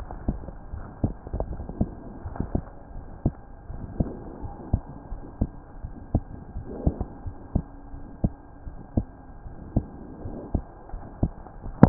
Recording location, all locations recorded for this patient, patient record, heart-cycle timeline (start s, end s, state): pulmonary valve (PV)
aortic valve (AV)+pulmonary valve (PV)+tricuspid valve (TV)+mitral valve (MV)
#Age: Child
#Sex: Female
#Height: 116.0 cm
#Weight: 19.4 kg
#Pregnancy status: False
#Murmur: Present
#Murmur locations: tricuspid valve (TV)
#Most audible location: tricuspid valve (TV)
#Systolic murmur timing: Early-systolic
#Systolic murmur shape: Plateau
#Systolic murmur grading: I/VI
#Systolic murmur pitch: Low
#Systolic murmur quality: Blowing
#Diastolic murmur timing: nan
#Diastolic murmur shape: nan
#Diastolic murmur grading: nan
#Diastolic murmur pitch: nan
#Diastolic murmur quality: nan
#Outcome: Abnormal
#Campaign: 2015 screening campaign
0.00	0.70	unannotated
0.70	0.86	S1
0.86	1.00	systole
1.00	1.16	S2
1.16	1.48	diastole
1.48	1.64	S1
1.64	1.78	systole
1.78	1.92	S2
1.92	2.22	diastole
2.22	2.36	S1
2.36	2.52	systole
2.52	2.64	S2
2.64	2.91	diastole
2.91	3.04	S1
3.04	3.22	systole
3.22	3.34	S2
3.34	3.68	diastole
3.68	3.82	S1
3.82	3.97	systole
3.97	4.08	S2
4.08	4.40	diastole
4.40	4.52	S1
4.52	4.68	systole
4.68	4.82	S2
4.82	5.09	diastole
5.09	5.22	S1
5.22	5.39	systole
5.39	5.52	S2
5.52	5.81	diastole
5.81	5.94	S1
5.94	6.10	systole
6.10	6.24	S2
6.24	6.54	diastole
6.54	6.66	S1
6.66	6.84	systole
6.84	6.98	S2
6.98	7.24	diastole
7.24	7.34	S1
7.34	7.52	systole
7.52	7.66	S2
7.66	7.90	diastole
7.90	8.02	S1
8.02	8.20	systole
8.20	8.34	S2
8.34	8.63	diastole
8.63	8.74	S1
8.74	8.94	systole
8.94	9.08	S2
9.08	9.42	diastole
9.42	9.52	S1
9.52	9.72	systole
9.72	9.88	S2
9.88	10.24	diastole
10.24	10.36	S1
10.36	10.52	systole
10.52	10.64	S2
10.64	10.89	diastole
10.89	11.02	S1
11.02	11.20	systole
11.20	11.34	S2
11.34	11.89	unannotated